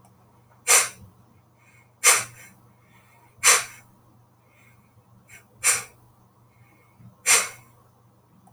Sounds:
Sneeze